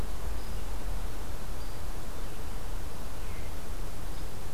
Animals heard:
forest ambience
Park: Marsh-Billings-Rockefeller National Historical Park